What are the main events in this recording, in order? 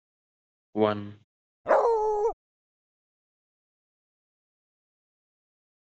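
At 0.75 seconds, a voice says "One." Then at 1.65 seconds, a dog barks.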